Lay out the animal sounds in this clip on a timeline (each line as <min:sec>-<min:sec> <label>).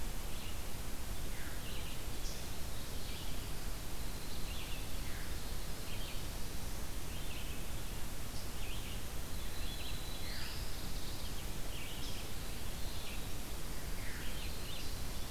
0:00.0-0:15.3 Red-eyed Vireo (Vireo olivaceus)
0:03.9-0:07.1 Winter Wren (Troglodytes hiemalis)
0:09.6-0:11.3 Black-throated Blue Warbler (Setophaga caerulescens)